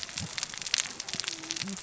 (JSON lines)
{"label": "biophony, cascading saw", "recorder": "SoundTrap 600 or HydroMoth"}